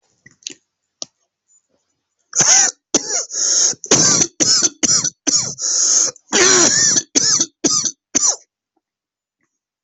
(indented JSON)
{
  "expert_labels": [
    {
      "quality": "good",
      "cough_type": "dry",
      "dyspnea": true,
      "wheezing": true,
      "stridor": false,
      "choking": false,
      "congestion": false,
      "nothing": false,
      "diagnosis": "obstructive lung disease",
      "severity": "severe"
    }
  ],
  "age": 39,
  "gender": "male",
  "respiratory_condition": false,
  "fever_muscle_pain": false,
  "status": "COVID-19"
}